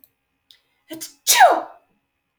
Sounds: Sneeze